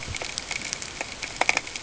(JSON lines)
{"label": "ambient", "recorder": "HydroMoth"}